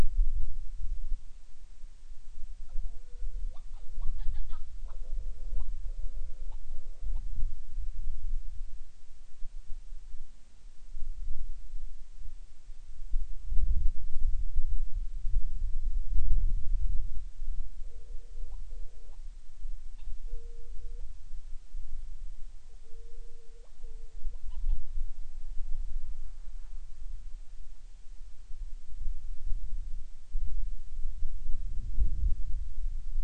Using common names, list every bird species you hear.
Hawaiian Petrel